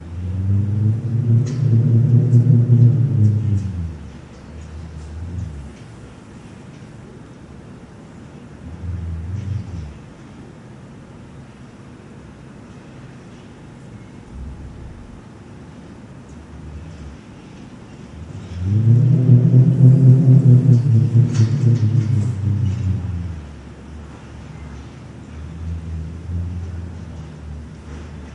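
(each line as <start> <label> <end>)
0.1 Wind blows loudly. 5.9
5.9 Wind is blowing. 18.5
18.5 Strong wind is blowing. 23.5
23.5 Wind is blowing. 28.3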